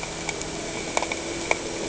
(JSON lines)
{"label": "anthrophony, boat engine", "recorder": "HydroMoth"}